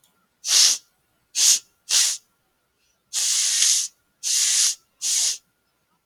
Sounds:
Sniff